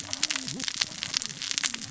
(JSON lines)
{"label": "biophony, cascading saw", "recorder": "SoundTrap 600 or HydroMoth"}